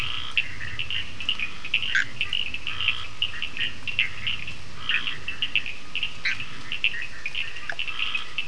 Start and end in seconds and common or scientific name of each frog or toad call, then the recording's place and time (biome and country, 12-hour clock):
0.0	0.5	Scinax perereca
0.0	8.4	Cochran's lime tree frog
1.7	2.2	Bischoff's tree frog
2.5	3.1	Scinax perereca
4.7	5.3	Scinax perereca
6.1	6.5	Bischoff's tree frog
7.7	8.4	Scinax perereca
Atlantic Forest, Brazil, 8:30pm